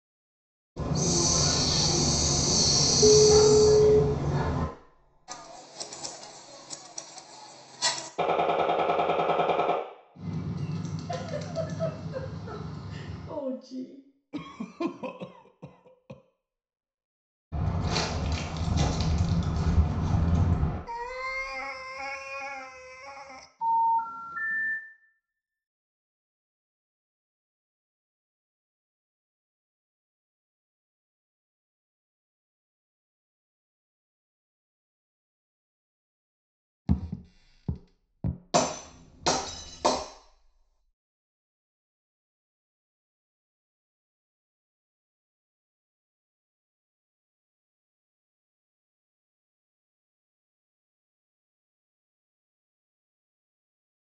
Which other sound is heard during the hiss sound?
telephone